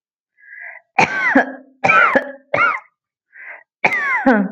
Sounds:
Cough